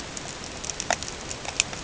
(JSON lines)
{"label": "ambient", "recorder": "HydroMoth"}